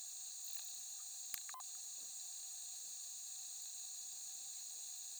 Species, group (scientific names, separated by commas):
Baetica ustulata, Orthoptera